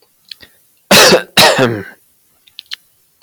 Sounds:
Cough